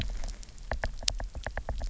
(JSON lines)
{"label": "biophony, knock", "recorder": "SoundTrap 300"}